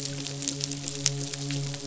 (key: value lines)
label: biophony, midshipman
recorder: SoundTrap 500